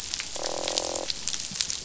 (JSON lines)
{"label": "biophony, croak", "recorder": "SoundTrap 500"}